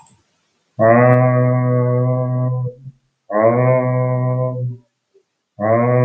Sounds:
Laughter